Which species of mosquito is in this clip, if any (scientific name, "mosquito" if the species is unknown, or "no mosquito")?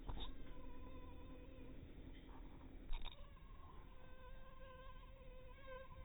mosquito